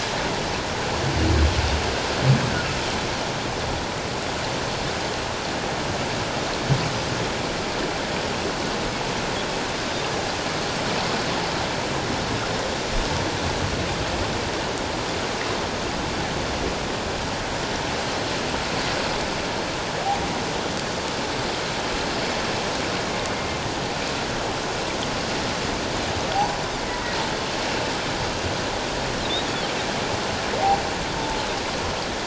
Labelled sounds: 26.3	26.6	humpback whale, 0.78 to 1.0 kHz

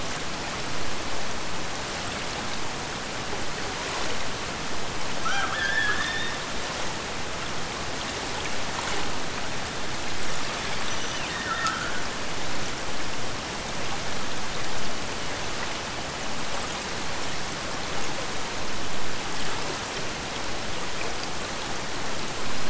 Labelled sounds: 5.2	6.6	killer whale, Bigg's (transient), Gulf of Alaska transient, 0.69 to 3.8 kHz
10.8	12.5	killer whale, Bigg's (transient), Gulf of Alaska transient, 1.2 to 6.2 kHz

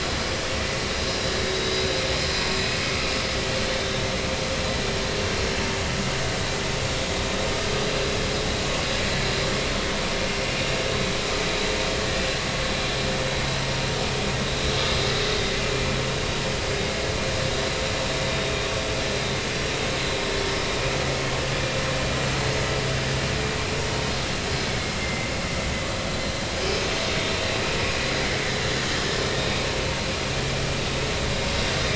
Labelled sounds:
1.4	1.9	vessel noise, 3.7 to 4.0 kHz
2.3	2.6	vessel noise, 2.4 to 2.6 kHz
3.7	4.0	vessel noise, 3.6 to 3.7 kHz
25.0	25.3	vessel noise, 2.0 to 2.2 kHz
29.4	29.7	vessel noise, 3.6 to 3.8 kHz

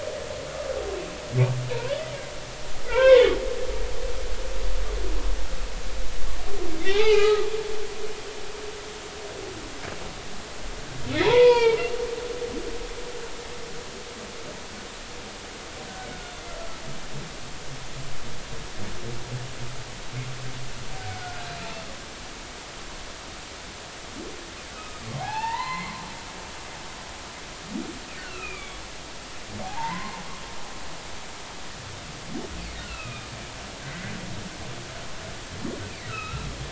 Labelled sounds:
2.9	3.4	humpback whale, 0.86 to 2.8 kHz
6.8	7.5	humpback whale, 0.80 to 3.1 kHz
11.1	11.8	humpback whale, 0.83 to 4.9 kHz
16.2	16.5	humpback whale, 3.4 to 3.6 kHz
21.1	21.4	humpback whale, 1.4 to 1.5 kHz
24.8	26.0	humpback whale, 0.80 to 4.6 kHz
28.2	28.8	humpback whale, 1.2 to 2.8 kHz
29.6	30.2	humpback whale, 0.80 to 2.1 kHz
32.8	34.2	humpback whale, 1.2 to 2.9 kHz
36.1	36.5	humpback whale, 1.2 to 3.9 kHz

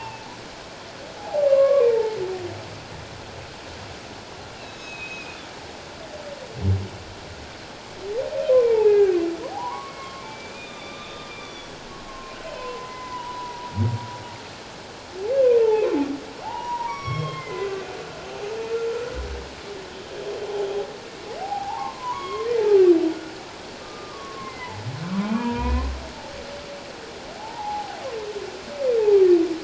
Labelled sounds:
1.2	1.9	humpback whale, 0.78 to 1.2 kHz
4.6	5.4	humpback whale, 2.4 to 4.1 kHz
8.7	13.7	humpback whale, 0.78 to 3.7 kHz
16.4	17.7	humpback whale, 0.78 to 5.7 kHz
18.7	19.1	humpback whale, 1.3 to 1.4 kHz
21.4	22.5	humpback whale, 0.78 to 3.4 kHz
23.8	24.8	humpback whale, 0.97 to 2.2 kHz
25.4	25.9	humpback whale, 0.91 to 2.6 kHz
27.3	28.0	humpback whale, 0.78 to 1.0 kHz

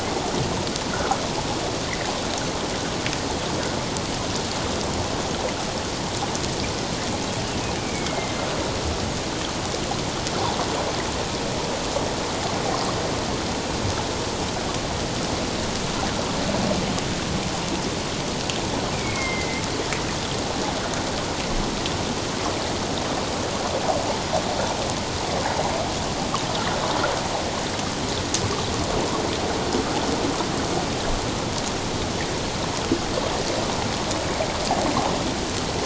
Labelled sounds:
0.9	1.2	water noise, 1.2 to 1.5 kHz
7.8	8.4	killer whale, northern resident, A clan, AA subclan, 2.0 to 2.4 kHz
18.9	19.6	killer whale, northern resident, A clan, AA subclan, 2.0 to 2.5 kHz

